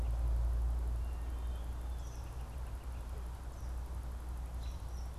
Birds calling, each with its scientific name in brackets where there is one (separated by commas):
Gray Catbird (Dumetella carolinensis), Eastern Kingbird (Tyrannus tyrannus), American Robin (Turdus migratorius)